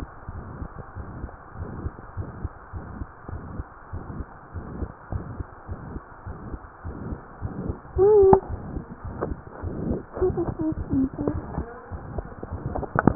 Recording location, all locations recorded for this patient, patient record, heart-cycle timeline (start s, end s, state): mitral valve (MV)
pulmonary valve (PV)+tricuspid valve (TV)+mitral valve (MV)
#Age: Child
#Sex: Female
#Height: 112.0 cm
#Weight: 21.2 kg
#Pregnancy status: False
#Murmur: Present
#Murmur locations: mitral valve (MV)+pulmonary valve (PV)+tricuspid valve (TV)
#Most audible location: pulmonary valve (PV)
#Systolic murmur timing: Holosystolic
#Systolic murmur shape: Diamond
#Systolic murmur grading: I/VI
#Systolic murmur pitch: Medium
#Systolic murmur quality: Harsh
#Diastolic murmur timing: nan
#Diastolic murmur shape: nan
#Diastolic murmur grading: nan
#Diastolic murmur pitch: nan
#Diastolic murmur quality: nan
#Outcome: Abnormal
#Campaign: 2015 screening campaign
0.00	0.84	unannotated
0.84	0.96	diastole
0.96	1.10	S1
1.10	1.20	systole
1.20	1.30	S2
1.30	1.58	diastole
1.58	1.74	S1
1.74	1.82	systole
1.82	1.96	S2
1.96	2.13	diastole
2.13	2.29	S1
2.29	2.42	systole
2.42	2.52	S2
2.52	2.72	diastole
2.72	2.88	S1
2.88	2.96	systole
2.96	3.08	S2
3.08	3.30	diastole
3.30	3.46	S1
3.46	3.56	systole
3.56	3.70	S2
3.70	3.89	diastole
3.89	4.06	S1
4.06	4.16	systole
4.16	4.28	S2
4.28	4.51	diastole
4.51	4.68	S1
4.68	4.76	systole
4.76	4.90	S2
4.90	5.11	diastole
5.11	5.26	S1
5.26	5.38	systole
5.38	5.48	S2
5.48	5.66	diastole
5.66	5.80	S1
5.80	5.92	systole
5.92	6.02	S2
6.02	6.24	diastole
6.24	6.38	S1
6.38	6.48	systole
6.48	6.60	S2
6.60	6.83	diastole
6.83	6.96	S1
6.96	7.06	systole
7.06	7.20	S2
7.20	7.41	diastole
7.41	7.54	S1
7.54	7.65	systole
7.65	7.76	S2
7.76	7.85	diastole
7.85	13.15	unannotated